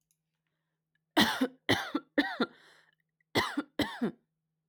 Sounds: Cough